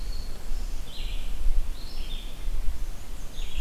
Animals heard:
Red-eyed Vireo (Vireo olivaceus), Black-and-white Warbler (Mniotilta varia)

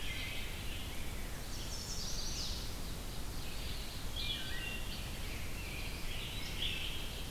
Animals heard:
Chestnut-sided Warbler (Setophaga pensylvanica), Red-eyed Vireo (Vireo olivaceus), Wood Thrush (Hylocichla mustelina), Eastern Wood-Pewee (Contopus virens)

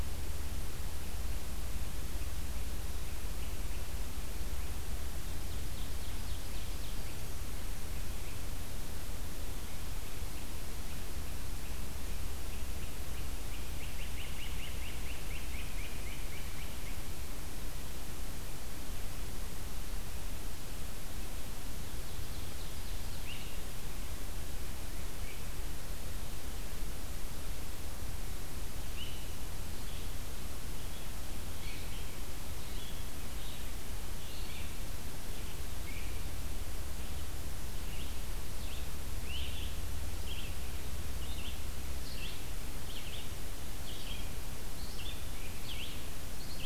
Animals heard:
Red-eyed Vireo (Vireo olivaceus), Ovenbird (Seiurus aurocapilla), Great Crested Flycatcher (Myiarchus crinitus)

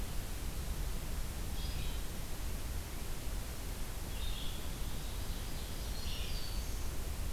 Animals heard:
Red-eyed Vireo (Vireo olivaceus), Ovenbird (Seiurus aurocapilla), Black-throated Green Warbler (Setophaga virens)

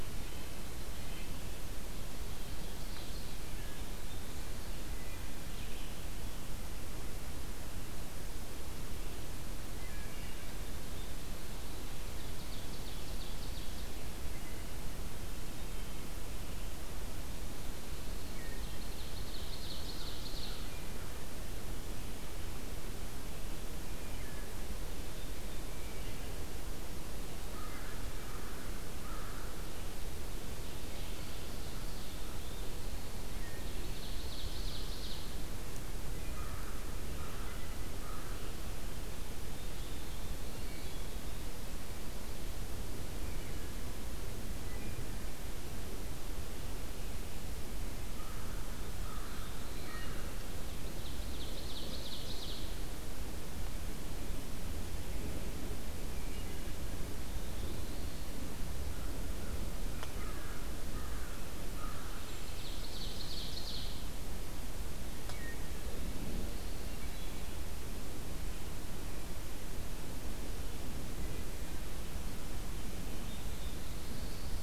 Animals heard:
American Crow (Corvus brachyrhynchos), unidentified call, Red-breasted Nuthatch (Sitta canadensis), Red-eyed Vireo (Vireo olivaceus), Black-throated Blue Warbler (Setophaga caerulescens), Wood Thrush (Hylocichla mustelina), Ovenbird (Seiurus aurocapilla)

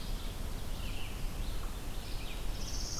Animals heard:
Red-eyed Vireo (Vireo olivaceus), unknown mammal, Northern Parula (Setophaga americana)

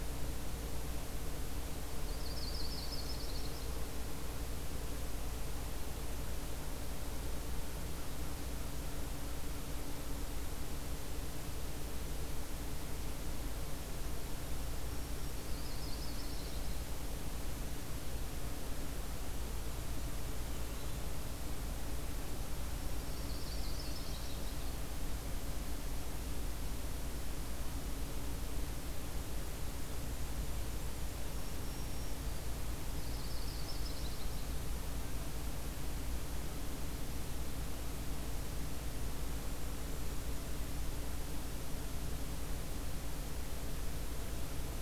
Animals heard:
White-throated Sparrow (Zonotrichia albicollis), Yellow-rumped Warbler (Setophaga coronata), Black-and-white Warbler (Mniotilta varia)

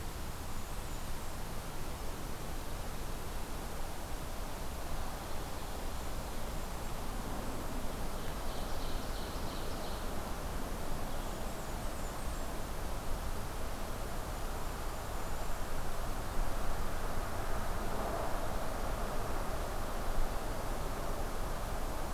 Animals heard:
Blackburnian Warbler (Setophaga fusca), Ovenbird (Seiurus aurocapilla), Golden-crowned Kinglet (Regulus satrapa)

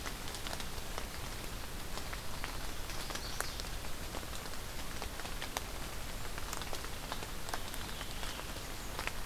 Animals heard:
Chestnut-sided Warbler (Setophaga pensylvanica), Veery (Catharus fuscescens)

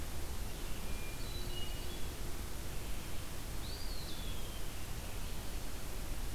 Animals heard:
Eastern Wood-Pewee (Contopus virens), Red-eyed Vireo (Vireo olivaceus), Hermit Thrush (Catharus guttatus)

